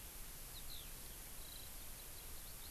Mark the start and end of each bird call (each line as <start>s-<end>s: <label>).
0.0s-2.7s: Eurasian Skylark (Alauda arvensis)